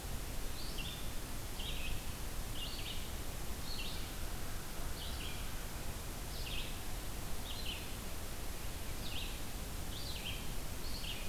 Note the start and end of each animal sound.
[0.00, 3.16] Red-eyed Vireo (Vireo olivaceus)
[3.59, 11.29] Red-eyed Vireo (Vireo olivaceus)

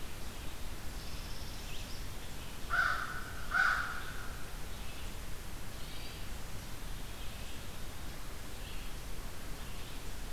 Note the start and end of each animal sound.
[0.93, 2.10] Northern Parula (Setophaga americana)
[2.35, 4.69] American Crow (Corvus brachyrhynchos)
[5.45, 6.44] Hermit Thrush (Catharus guttatus)

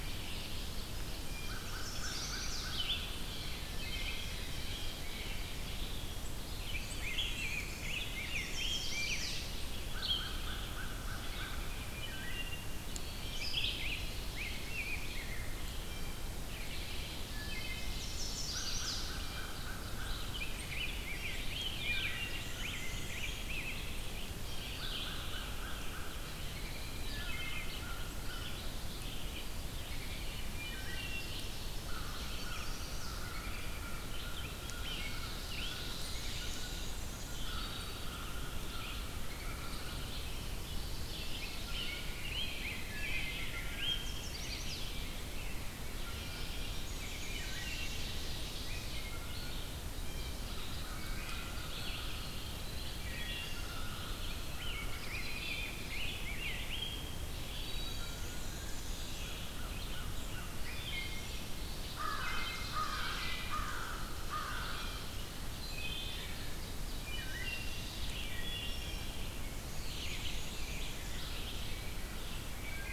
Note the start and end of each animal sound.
[0.00, 1.73] Ovenbird (Seiurus aurocapilla)
[0.00, 47.81] Red-eyed Vireo (Vireo olivaceus)
[1.22, 3.05] American Crow (Corvus brachyrhynchos)
[1.69, 2.70] Chestnut-sided Warbler (Setophaga pensylvanica)
[3.27, 5.16] Ovenbird (Seiurus aurocapilla)
[3.71, 4.30] Wood Thrush (Hylocichla mustelina)
[6.57, 9.30] Rose-breasted Grosbeak (Pheucticus ludovicianus)
[6.57, 8.09] Black-and-white Warbler (Mniotilta varia)
[8.15, 9.40] Chestnut-sided Warbler (Setophaga pensylvanica)
[9.87, 11.92] American Crow (Corvus brachyrhynchos)
[11.84, 12.67] Wood Thrush (Hylocichla mustelina)
[13.22, 15.45] Rose-breasted Grosbeak (Pheucticus ludovicianus)
[15.70, 16.33] Blue Jay (Cyanocitta cristata)
[17.29, 18.09] Wood Thrush (Hylocichla mustelina)
[17.88, 19.09] Chestnut-sided Warbler (Setophaga pensylvanica)
[18.41, 20.37] American Crow (Corvus brachyrhynchos)
[19.03, 19.52] Blue Jay (Cyanocitta cristata)
[20.23, 23.86] Rose-breasted Grosbeak (Pheucticus ludovicianus)
[21.76, 22.34] Wood Thrush (Hylocichla mustelina)
[22.30, 23.39] Black-and-white Warbler (Mniotilta varia)
[24.56, 40.17] American Crow (Corvus brachyrhynchos)
[27.01, 27.69] Wood Thrush (Hylocichla mustelina)
[30.57, 32.16] Ovenbird (Seiurus aurocapilla)
[31.93, 33.27] Chestnut-sided Warbler (Setophaga pensylvanica)
[34.89, 37.00] Ovenbird (Seiurus aurocapilla)
[35.95, 37.51] Black-and-white Warbler (Mniotilta varia)
[37.20, 38.08] Wood Thrush (Hylocichla mustelina)
[40.11, 41.96] Ovenbird (Seiurus aurocapilla)
[41.24, 44.06] Rose-breasted Grosbeak (Pheucticus ludovicianus)
[43.76, 44.85] Chestnut-sided Warbler (Setophaga pensylvanica)
[45.83, 46.79] Blue Jay (Cyanocitta cristata)
[46.82, 47.98] Black-and-white Warbler (Mniotilta varia)
[46.84, 48.92] Ovenbird (Seiurus aurocapilla)
[47.40, 47.93] Wood Thrush (Hylocichla mustelina)
[48.41, 72.92] Red-eyed Vireo (Vireo olivaceus)
[48.62, 49.58] Wood Thrush (Hylocichla mustelina)
[49.84, 50.57] Blue Jay (Cyanocitta cristata)
[50.46, 52.31] Ovenbird (Seiurus aurocapilla)
[50.68, 55.30] American Crow (Corvus brachyrhynchos)
[50.83, 51.51] Wood Thrush (Hylocichla mustelina)
[51.60, 52.96] Eastern Wood-Pewee (Contopus virens)
[51.95, 53.25] Pine Warbler (Setophaga pinus)
[52.91, 53.74] Wood Thrush (Hylocichla mustelina)
[53.29, 54.62] Eastern Wood-Pewee (Contopus virens)
[54.37, 57.20] Rose-breasted Grosbeak (Pheucticus ludovicianus)
[57.36, 58.19] Wood Thrush (Hylocichla mustelina)
[57.85, 59.39] Black-and-white Warbler (Mniotilta varia)
[57.91, 60.43] American Crow (Corvus brachyrhynchos)
[60.52, 61.45] Wood Thrush (Hylocichla mustelina)
[61.70, 63.41] Ovenbird (Seiurus aurocapilla)
[61.94, 64.88] American Crow (Corvus brachyrhynchos)
[62.05, 62.80] Wood Thrush (Hylocichla mustelina)
[63.89, 65.33] Ovenbird (Seiurus aurocapilla)
[65.60, 66.31] Wood Thrush (Hylocichla mustelina)
[66.19, 68.03] Ovenbird (Seiurus aurocapilla)
[67.00, 67.82] Wood Thrush (Hylocichla mustelina)
[68.17, 69.16] Wood Thrush (Hylocichla mustelina)
[68.73, 69.39] Blue Jay (Cyanocitta cristata)
[69.46, 71.18] Black-and-white Warbler (Mniotilta varia)
[69.89, 71.34] Ovenbird (Seiurus aurocapilla)

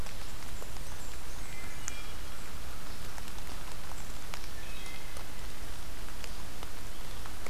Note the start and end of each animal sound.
[0.00, 2.02] Blackburnian Warbler (Setophaga fusca)
[1.36, 2.27] Wood Thrush (Hylocichla mustelina)
[4.37, 5.34] Wood Thrush (Hylocichla mustelina)

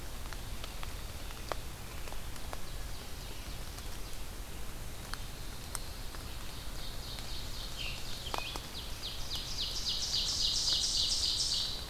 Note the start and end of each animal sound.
[0.00, 4.08] Ovenbird (Seiurus aurocapilla)
[5.69, 11.90] Ovenbird (Seiurus aurocapilla)
[7.72, 8.73] Scarlet Tanager (Piranga olivacea)

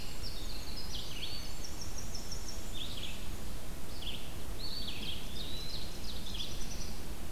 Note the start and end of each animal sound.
[0.00, 1.68] Winter Wren (Troglodytes hiemalis)
[0.00, 7.31] Red-eyed Vireo (Vireo olivaceus)
[0.98, 2.75] Black-and-white Warbler (Mniotilta varia)
[4.49, 6.21] Eastern Wood-Pewee (Contopus virens)
[5.15, 6.66] Ovenbird (Seiurus aurocapilla)
[6.11, 6.97] Black-throated Blue Warbler (Setophaga caerulescens)

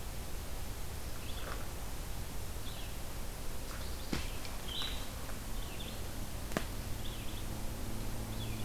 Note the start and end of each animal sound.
[1.07, 8.64] Red-eyed Vireo (Vireo olivaceus)
[4.49, 5.05] Blue-headed Vireo (Vireo solitarius)

